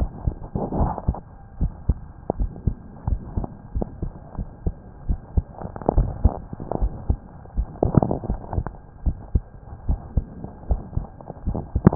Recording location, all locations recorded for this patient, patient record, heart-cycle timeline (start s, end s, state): pulmonary valve (PV)
aortic valve (AV)+pulmonary valve (PV)+tricuspid valve (TV)+mitral valve (MV)
#Age: Child
#Sex: Male
#Height: 140.0 cm
#Weight: 39.2 kg
#Pregnancy status: False
#Murmur: Absent
#Murmur locations: nan
#Most audible location: nan
#Systolic murmur timing: nan
#Systolic murmur shape: nan
#Systolic murmur grading: nan
#Systolic murmur pitch: nan
#Systolic murmur quality: nan
#Diastolic murmur timing: nan
#Diastolic murmur shape: nan
#Diastolic murmur grading: nan
#Diastolic murmur pitch: nan
#Diastolic murmur quality: nan
#Outcome: Normal
#Campaign: 2015 screening campaign
0.00	1.56	unannotated
1.56	1.72	S1
1.72	1.84	systole
1.84	1.98	S2
1.98	2.38	diastole
2.38	2.52	S1
2.52	2.62	systole
2.62	2.74	S2
2.74	3.08	diastole
3.08	3.20	S1
3.20	3.36	systole
3.36	3.50	S2
3.50	3.71	diastole
3.71	3.86	S1
3.86	3.99	systole
3.99	4.12	S2
4.12	4.35	diastole
4.35	4.48	S1
4.48	4.62	systole
4.62	4.74	S2
4.74	5.04	diastole
5.04	5.20	S1
5.20	5.34	systole
5.34	5.46	S2
5.46	5.94	diastole
5.94	6.10	S1
6.10	6.22	systole
6.22	6.36	S2
6.36	6.80	diastole
6.80	6.94	S1
6.94	7.08	systole
7.08	7.20	S2
7.20	7.56	diastole
7.56	7.68	S1
7.68	7.82	systole
7.82	7.96	S2
7.96	8.25	diastole
8.25	8.40	S1
8.40	8.54	systole
8.54	8.68	S2
8.68	9.04	diastole
9.04	9.18	S1
9.18	9.32	systole
9.32	9.46	S2
9.46	9.86	diastole
9.86	10.00	S1
10.00	10.14	systole
10.14	10.28	S2
10.28	10.68	diastole
10.68	10.82	S1
10.82	10.94	systole
10.94	11.06	S2
11.06	11.44	diastole
11.44	11.57	S1
11.57	11.95	unannotated